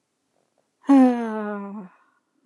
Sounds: Sigh